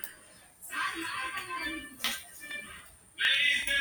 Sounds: Sigh